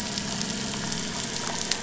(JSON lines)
{"label": "anthrophony, boat engine", "recorder": "SoundTrap 500"}